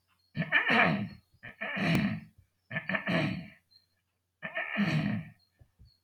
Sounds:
Throat clearing